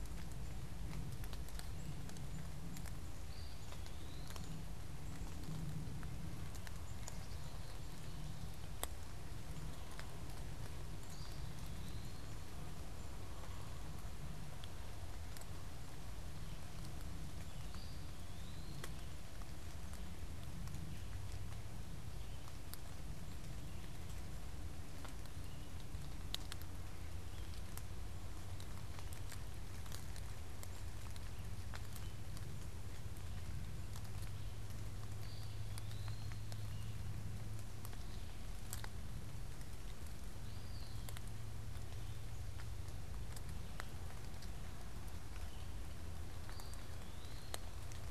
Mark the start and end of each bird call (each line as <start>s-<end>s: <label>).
1.5s-8.4s: Black-capped Chickadee (Poecile atricapillus)
3.2s-4.5s: Eastern Wood-Pewee (Contopus virens)
10.9s-12.3s: Eastern Wood-Pewee (Contopus virens)
17.5s-19.0s: Eastern Wood-Pewee (Contopus virens)
35.0s-36.5s: Eastern Wood-Pewee (Contopus virens)
40.3s-41.1s: Eastern Wood-Pewee (Contopus virens)
46.3s-47.7s: Eastern Wood-Pewee (Contopus virens)